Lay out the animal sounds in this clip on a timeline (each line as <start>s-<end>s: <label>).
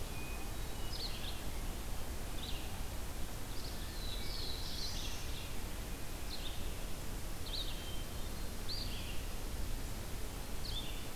0.0s-1.0s: Hermit Thrush (Catharus guttatus)
0.0s-11.0s: Red-eyed Vireo (Vireo olivaceus)
3.7s-5.2s: Black-throated Blue Warbler (Setophaga caerulescens)
7.5s-8.5s: Hermit Thrush (Catharus guttatus)